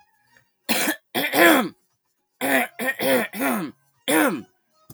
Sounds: Throat clearing